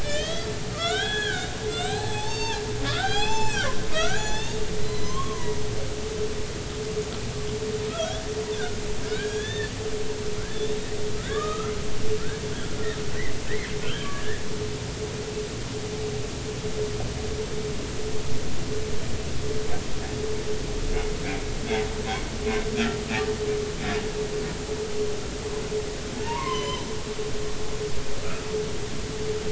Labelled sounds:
0.0	5.6	humpback whale, 0.80 to 7.8 kHz
7.9	8.2	humpback whale, 1.2 to 3.5 kHz
9.1	9.7	humpback whale, 1.4 to 3.7 kHz
10.5	10.8	humpback whale, 3.4 to 3.7 kHz
11.2	11.7	humpback whale, 1.1 to 1.9 kHz
12.5	12.8	humpback whale, 1.3 to 1.7 kHz
13.8	14.4	humpback whale, 1.1 to 3.4 kHz
26.2	26.9	humpback whale, 0.86 to 3.2 kHz

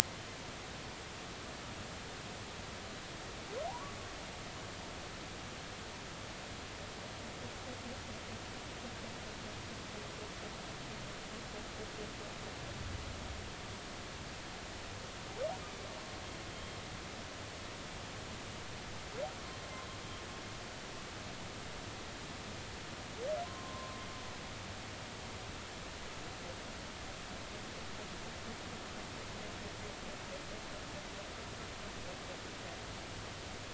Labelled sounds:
3.7	3.9	humpback whale, 0.80 to 1.2 kHz
16.5	16.8	humpback whale, 3.1 to 3.3 kHz
23.4	24.0	humpback whale, 0.96 to 1.1 kHz

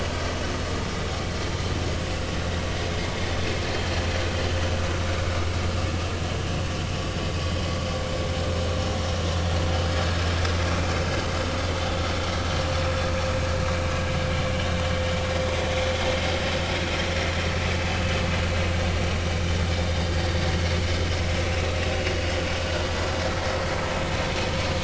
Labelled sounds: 13.9	14.1	vessel noise, 4.8 to 5.1 kHz
21.4	21.7	vessel noise, 2.5 to 2.8 kHz

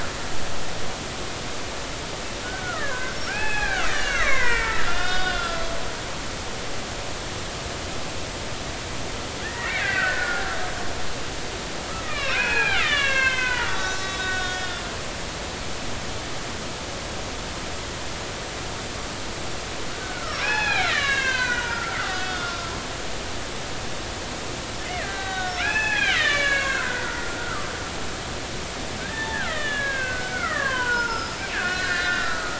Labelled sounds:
2.4	6.4	killer whale, Bigg's (transient), 0.80 to 6.4 kHz
9.4	10.4	killer whale, Bigg's (transient), 1.2 to 4.7 kHz
12.0	14.8	killer whale, Bigg's (transient), 0.80 to 7.1 kHz
20.0	22.7	killer whale, Bigg's (transient), 0.80 to 6.3 kHz
24.8	27.7	killer whale, Bigg's (transient), 0.80 to 6.4 kHz
29.0	32.5	killer whale, Bigg's (transient), 0.83 to 5.3 kHz

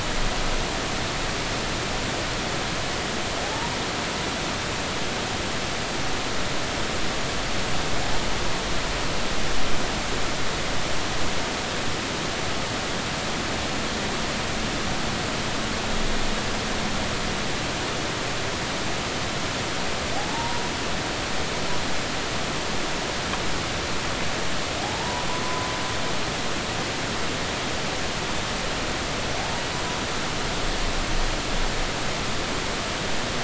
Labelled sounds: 3.4	3.7	humpback whale, 0.80 to 0.99 kHz
20.2	20.6	humpback whale, 0.80 to 0.99 kHz
24.8	25.7	humpback whale, 0.80 to 1.1 kHz

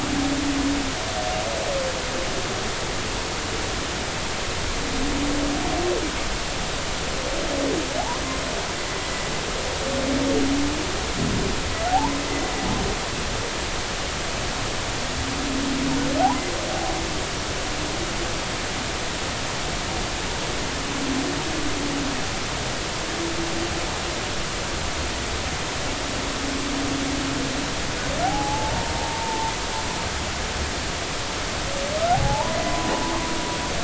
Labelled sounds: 11.9	12.2	humpback whale, 0.80 to 1.1 kHz
28.2	29.6	humpback whale, 0.80 to 0.99 kHz
32.1	33.3	humpback whale, 0.80 to 1.1 kHz

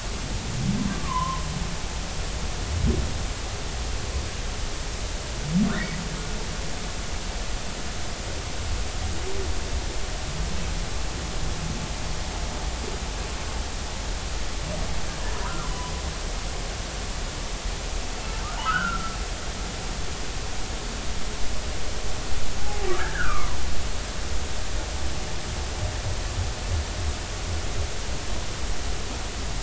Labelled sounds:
0.9	1.4	humpback whale, 0.93 to 1.2 kHz
15.4	15.7	humpback whale, 0.96 to 1.4 kHz
18.6	19.2	humpback whale, 1.2 to 3.2 kHz
22.6	23.6	humpback whale, 0.80 to 1.8 kHz

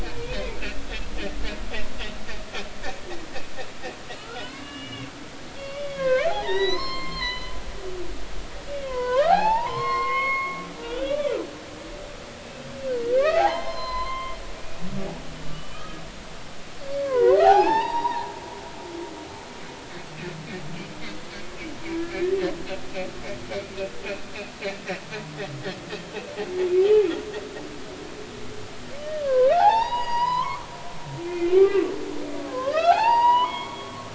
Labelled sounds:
0.0	0.4	humpback whale, 2.3 to 2.6 kHz
4.2	7.5	humpback whale, 0.80 to 6.3 kHz
8.7	11.3	humpback whale, 0.80 to 5.4 kHz
12.4	12.7	humpback whale, 2.6 to 2.7 kHz
13.0	14.8	humpback whale, 0.80 to 5.3 kHz
15.4	16.0	humpback whale, 1.1 to 3.2 kHz
16.9	19.3	humpback whale, 0.80 to 5.5 kHz
22.0	22.4	humpback whale, 1.6 to 2.0 kHz
25.9	26.2	humpback whale, 3.1 to 3.2 kHz
26.8	27.1	humpback whale, 0.80 to 3.1 kHz
29.2	30.7	humpback whale, 0.80 to 6.8 kHz
31.2	34.1	humpback whale, 0.80 to 4.9 kHz

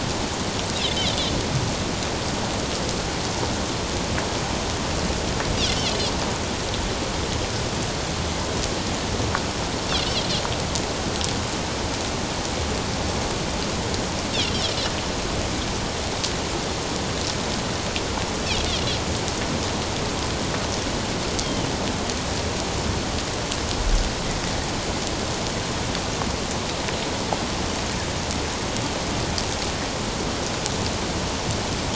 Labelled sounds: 21.4	21.7	Pacific white-sided dolphin, 3.0 to 3.3 kHz

